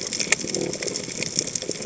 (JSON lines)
{"label": "biophony", "recorder": "HydroMoth"}